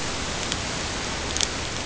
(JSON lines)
{"label": "ambient", "recorder": "HydroMoth"}